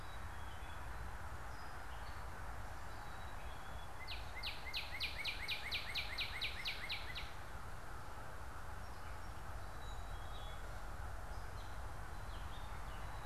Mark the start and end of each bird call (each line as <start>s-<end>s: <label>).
0.0s-13.3s: Black-capped Chickadee (Poecile atricapillus)
0.0s-13.3s: Gray Catbird (Dumetella carolinensis)
3.7s-7.5s: Northern Cardinal (Cardinalis cardinalis)